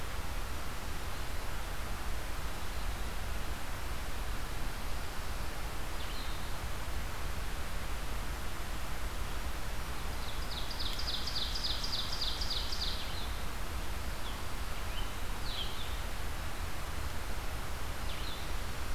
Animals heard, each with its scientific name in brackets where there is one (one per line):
Blackburnian Warbler (Setophaga fusca)
Red-eyed Vireo (Vireo olivaceus)
Ovenbird (Seiurus aurocapilla)
Scarlet Tanager (Piranga olivacea)